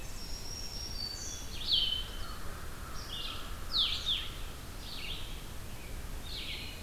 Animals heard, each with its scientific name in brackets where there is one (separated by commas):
Blue-headed Vireo (Vireo solitarius), Black-throated Green Warbler (Setophaga virens), American Crow (Corvus brachyrhynchos)